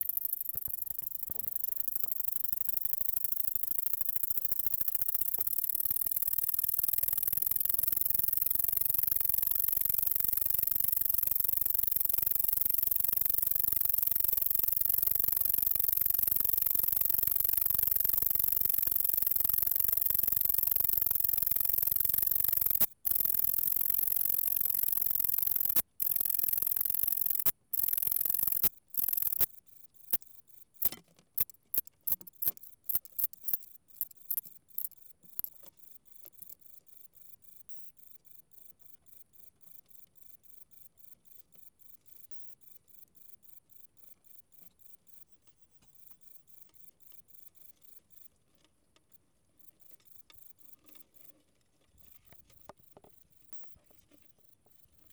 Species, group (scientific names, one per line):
Polysarcus denticauda
Orthoptera